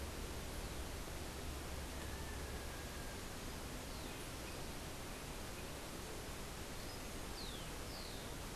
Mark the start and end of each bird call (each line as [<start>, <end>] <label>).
[6.88, 8.48] Rufous-collared Sparrow (Zonotrichia capensis)